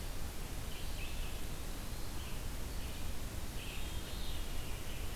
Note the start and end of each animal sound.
[0.00, 5.13] Red-eyed Vireo (Vireo olivaceus)
[3.44, 4.97] Veery (Catharus fuscescens)

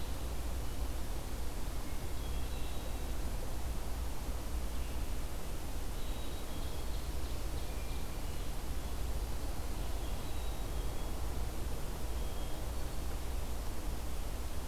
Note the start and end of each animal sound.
[1.83, 3.26] Hermit Thrush (Catharus guttatus)
[5.91, 6.91] Black-capped Chickadee (Poecile atricapillus)
[6.47, 8.20] Ovenbird (Seiurus aurocapilla)
[7.50, 9.07] Hermit Thrush (Catharus guttatus)
[10.13, 11.26] Black-capped Chickadee (Poecile atricapillus)
[12.07, 13.34] Black-capped Chickadee (Poecile atricapillus)

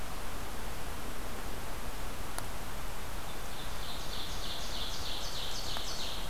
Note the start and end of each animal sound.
[3.08, 6.29] Ovenbird (Seiurus aurocapilla)

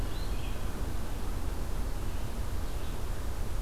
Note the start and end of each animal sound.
[0.00, 0.64] Red-eyed Vireo (Vireo olivaceus)

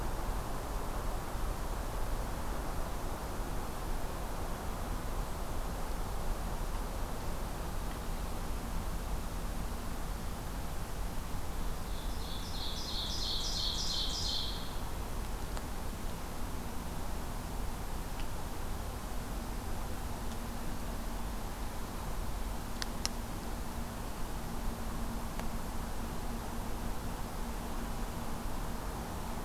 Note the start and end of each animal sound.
[11.64, 14.90] Ovenbird (Seiurus aurocapilla)

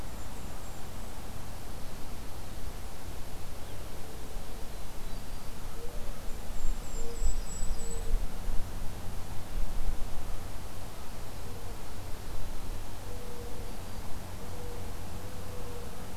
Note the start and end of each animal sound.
[0.00, 1.20] Golden-crowned Kinglet (Regulus satrapa)
[4.08, 8.24] Mourning Dove (Zenaida macroura)
[4.93, 5.55] Black-throated Green Warbler (Setophaga virens)
[6.23, 8.11] Golden-crowned Kinglet (Regulus satrapa)
[6.62, 8.04] Yellow-rumped Warbler (Setophaga coronata)
[11.40, 16.17] Mourning Dove (Zenaida macroura)
[13.46, 14.10] Black-throated Green Warbler (Setophaga virens)

